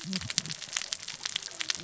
{"label": "biophony, cascading saw", "recorder": "SoundTrap 600 or HydroMoth"}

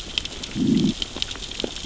{"label": "biophony, growl", "recorder": "SoundTrap 600 or HydroMoth"}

